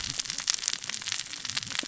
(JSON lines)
{"label": "biophony, cascading saw", "recorder": "SoundTrap 600 or HydroMoth"}